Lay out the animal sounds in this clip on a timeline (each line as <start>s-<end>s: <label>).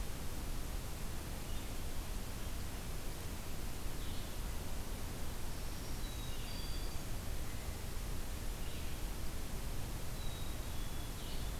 1.3s-11.6s: Blue-headed Vireo (Vireo solitarius)
5.5s-7.2s: Black-throated Green Warbler (Setophaga virens)
5.9s-7.0s: Black-capped Chickadee (Poecile atricapillus)
10.1s-11.2s: Black-capped Chickadee (Poecile atricapillus)